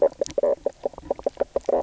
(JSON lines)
{"label": "biophony, knock croak", "recorder": "SoundTrap 300"}